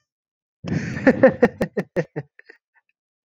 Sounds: Laughter